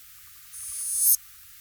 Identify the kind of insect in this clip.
orthopteran